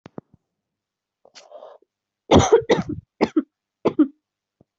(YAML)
expert_labels:
- quality: good
  cough_type: dry
  dyspnea: false
  wheezing: false
  stridor: false
  choking: false
  congestion: false
  nothing: true
  diagnosis: upper respiratory tract infection
  severity: mild
age: 22
gender: female
respiratory_condition: false
fever_muscle_pain: false
status: healthy